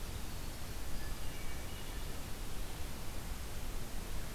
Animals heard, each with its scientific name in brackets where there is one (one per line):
Hermit Thrush (Catharus guttatus)